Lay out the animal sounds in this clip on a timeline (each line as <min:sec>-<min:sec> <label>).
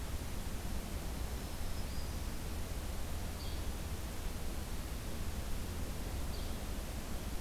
0:01.2-0:02.2 Black-throated Green Warbler (Setophaga virens)
0:03.4-0:03.6 Yellow-bellied Flycatcher (Empidonax flaviventris)
0:06.3-0:06.5 Yellow-bellied Flycatcher (Empidonax flaviventris)